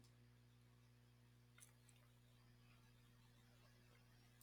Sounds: Sniff